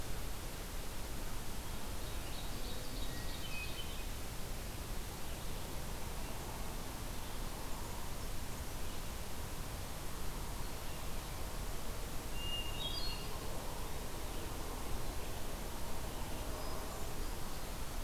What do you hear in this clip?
Ovenbird, Hermit Thrush